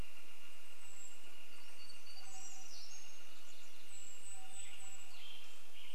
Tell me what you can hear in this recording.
Pacific-slope Flycatcher song, warbler song, Golden-crowned Kinglet call, Northern Flicker call, unidentified sound, Western Tanager song